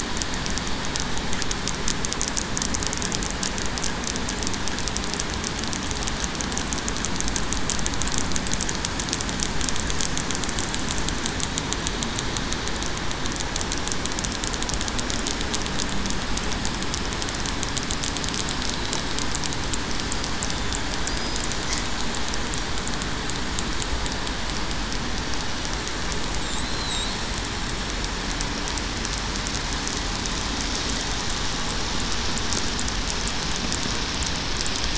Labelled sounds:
26.6	27.1	killer whale, southern resident, 3.7 to 8.0 kHz

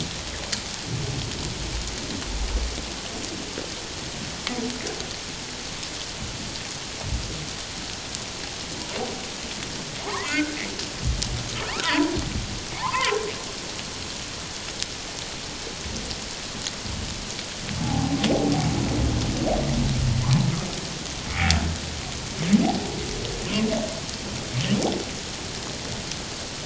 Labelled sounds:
10.0	10.6	humpback whale, 0.78 to 2.2 kHz
11.7	12.1	humpback whale, 0.78 to 1.6 kHz
12.8	13.2	humpback whale, 0.78 to 1.4 kHz
17.8	18.2	humpback whale, 0.78 to 0.94 kHz

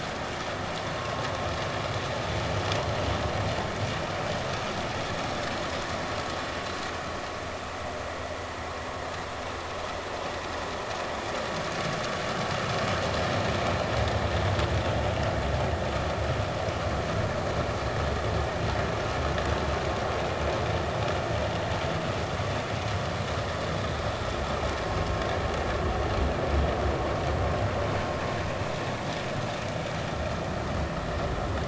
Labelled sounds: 1.0	1.2	vessel noise, 1.0 to 1.1 kHz

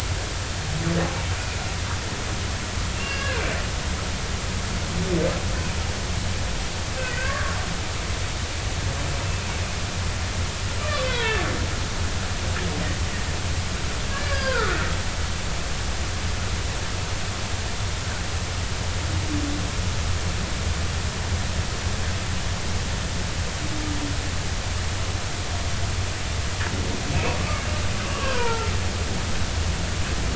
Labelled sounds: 3.0	3.5	humpback whale, 1.5 to 2.8 kHz
7.0	7.5	humpback whale, 1.0 to 1.9 kHz
10.8	11.4	humpback whale, 0.83 to 3.5 kHz
14.1	14.8	humpback whale, 0.86 to 1.8 kHz
27.1	27.4	humpback whale, 2.4 to 2.7 kHz
28.0	28.7	humpback whale, 0.86 to 1.7 kHz

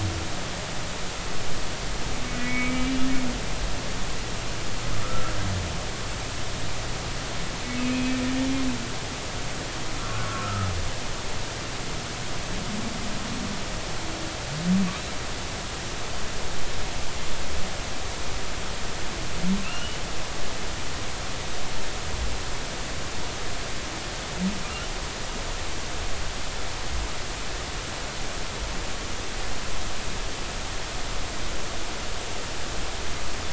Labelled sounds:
2.3	2.8	humpback whale, 1.9 to 2.4 kHz
5.0	5.4	humpback whale, 1.2 to 1.4 kHz
7.8	8.2	humpback whale, 2.4 to 2.6 kHz
10.1	10.7	humpback whale, 1.2 to 1.5 kHz
19.6	20.0	humpback whale, 2.5 to 3.0 kHz

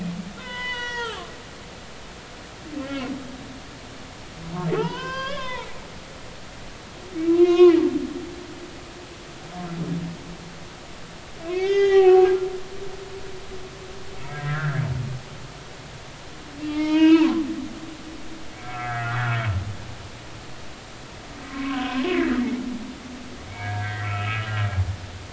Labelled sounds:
0.4	1.3	humpback whale, 0.86 to 6.8 kHz
2.8	3.1	humpback whale, 2.0 to 3.1 kHz
4.7	5.7	humpback whale, 0.80 to 5.3 kHz
7.3	7.8	humpback whale, 0.96 to 4.0 kHz
11.5	12.4	humpback whale, 0.80 to 6.5 kHz
14.2	14.8	humpback whale, 1.2 to 2.3 kHz
16.6	17.5	humpback whale, 0.86 to 4.1 kHz
18.0	19.2	humpback whale, 1.2 to 3.7 kHz
21.5	22.3	humpback whale, 0.96 to 2.3 kHz
23.5	24.5	humpback whale, 1.2 to 3.0 kHz

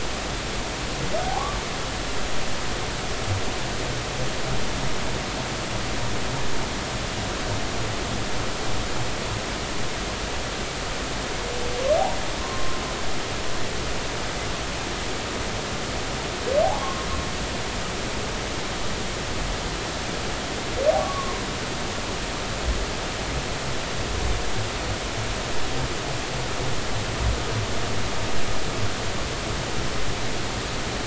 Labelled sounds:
1.2	1.6	humpback whale, 0.80 to 1.2 kHz
12.4	12.8	humpback whale, 0.96 to 1.1 kHz
16.6	17.1	humpback whale, 0.80 to 1.1 kHz
21.0	21.4	humpback whale, 0.96 to 1.2 kHz

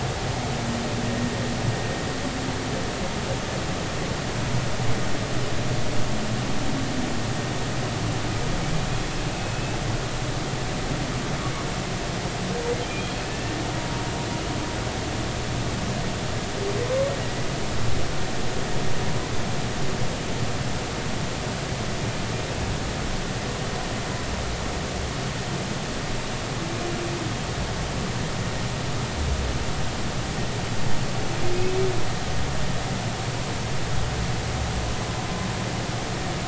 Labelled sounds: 12.9	14.0	humpback whale, 0.93 to 2.5 kHz
16.8	17.1	humpback whale, 0.99 to 1.2 kHz

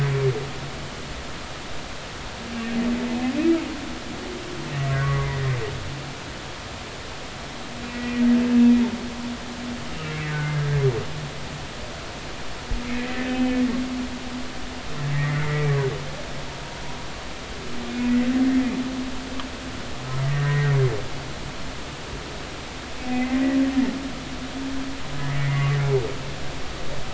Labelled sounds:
4.9	5.5	humpback whale, 1.1 to 2.1 kHz
7.9	8.2	humpback whale, 1.9 to 2.0 kHz
10.5	10.8	humpback whale, 1.6 to 1.7 kHz
13.2	13.6	humpback whale, 2.5 to 3.2 kHz
15.2	15.7	humpback whale, 1.9 to 2.1 kHz
17.9	18.2	humpback whale, 2.4 to 2.6 kHz
20.3	20.8	humpback whale, 1.8 to 1.9 kHz
23.1	23.4	humpback whale, 2.0 to 2.1 kHz
25.4	25.8	humpback whale, 1.1 to 2.1 kHz

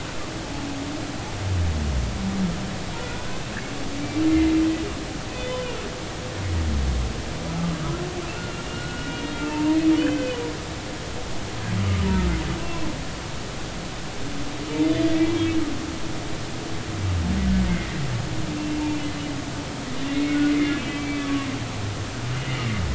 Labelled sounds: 3.0	3.4	humpback whale, 1.3 to 1.6 kHz
4.3	5.8	humpback whale, 2.0 to 3.6 kHz
8.7	10.4	humpback whale, 0.86 to 3.1 kHz
16.3	16.6	humpback whale, 2.2 to 2.4 kHz
17.7	18.0	humpback whale, 1.8 to 2.2 kHz
18.6	18.8	humpback whale, 2.7 to 2.8 kHz
20.1	21.5	humpback whale, 1.1 to 2.4 kHz

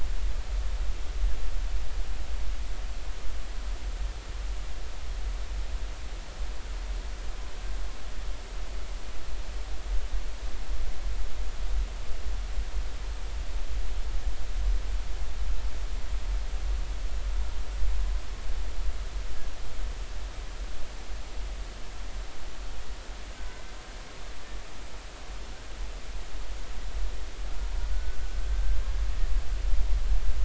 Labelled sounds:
23.5	23.7	humpback whale, 2.0 to 2.2 kHz
27.9	28.8	humpback whale, 1.4 to 1.6 kHz

